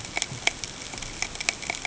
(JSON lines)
{"label": "ambient", "recorder": "HydroMoth"}